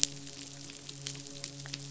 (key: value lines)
label: biophony, midshipman
recorder: SoundTrap 500